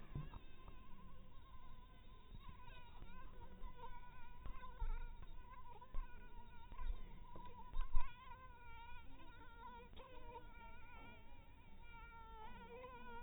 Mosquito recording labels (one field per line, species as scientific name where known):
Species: mosquito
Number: one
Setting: cup